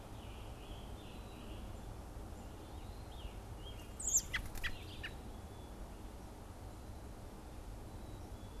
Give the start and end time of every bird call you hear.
[0.00, 1.80] Scarlet Tanager (Piranga olivacea)
[2.80, 5.20] Scarlet Tanager (Piranga olivacea)
[3.80, 5.40] American Robin (Turdus migratorius)

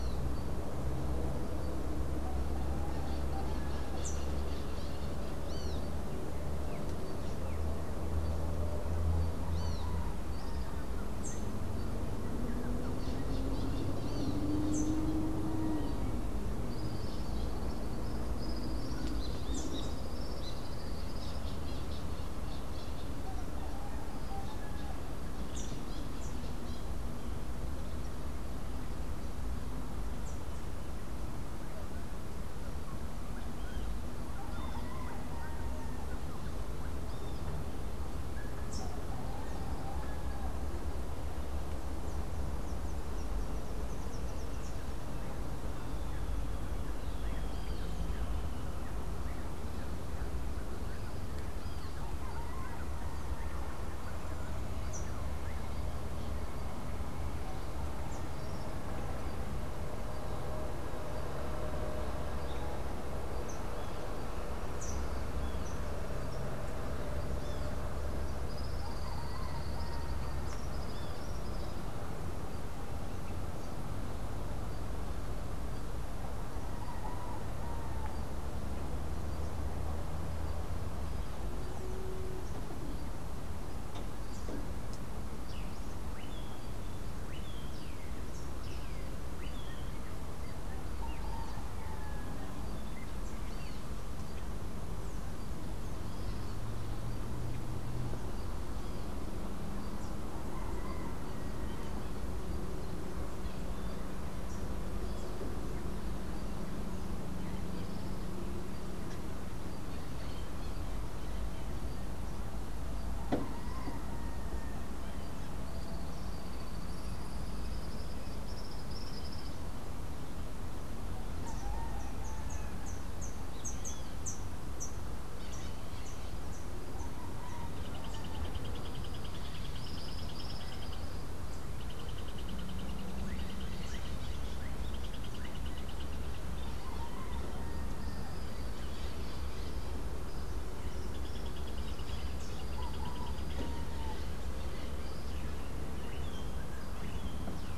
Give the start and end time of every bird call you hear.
[5.33, 5.83] Great Kiskadee (Pitangus sulphuratus)
[9.43, 10.03] Great Kiskadee (Pitangus sulphuratus)
[19.03, 21.63] Tropical Kingbird (Tyrannus melancholicus)
[68.43, 71.83] Tropical Kingbird (Tyrannus melancholicus)
[85.23, 90.03] Melodious Blackbird (Dives dives)
[115.73, 119.73] Tropical Kingbird (Tyrannus melancholicus)
[121.83, 125.23] Rufous-capped Warbler (Basileuterus rufifrons)
[127.93, 136.23] Boat-billed Flycatcher (Megarynchus pitangua)

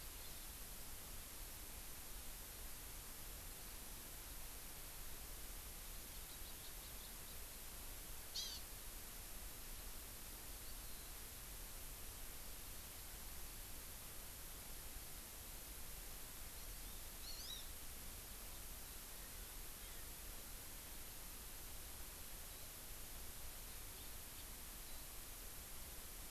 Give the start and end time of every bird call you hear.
[0.18, 0.48] Hawaii Amakihi (Chlorodrepanis virens)
[6.08, 7.48] Hawaii Amakihi (Chlorodrepanis virens)
[8.28, 8.58] Hawaii Amakihi (Chlorodrepanis virens)
[10.68, 11.18] Eurasian Skylark (Alauda arvensis)
[16.48, 17.68] Hawaii Amakihi (Chlorodrepanis virens)
[19.08, 19.58] Erckel's Francolin (Pternistis erckelii)
[19.78, 20.08] Hawaii Amakihi (Chlorodrepanis virens)
[22.48, 22.68] Warbling White-eye (Zosterops japonicus)
[23.98, 24.48] House Finch (Haemorhous mexicanus)
[24.88, 25.08] Warbling White-eye (Zosterops japonicus)

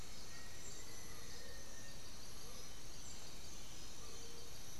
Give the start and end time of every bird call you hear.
[0.20, 2.10] Black-faced Antthrush (Formicarius analis)
[2.30, 2.80] Amazonian Motmot (Momotus momota)

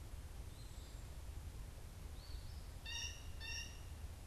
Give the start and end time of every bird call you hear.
[0.00, 2.90] Eastern Phoebe (Sayornis phoebe)
[2.70, 3.90] Blue Jay (Cyanocitta cristata)

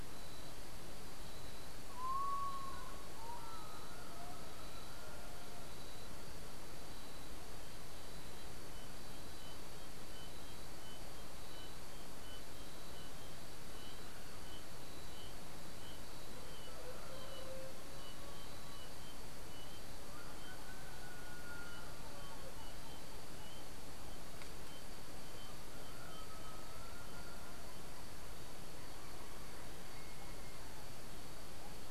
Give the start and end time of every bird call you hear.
[1.86, 5.37] Common Potoo (Nyctibius griseus)

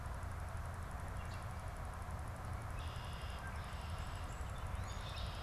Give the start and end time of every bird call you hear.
[2.40, 5.42] Red-winged Blackbird (Agelaius phoeniceus)
[3.20, 5.42] Northern Flicker (Colaptes auratus)

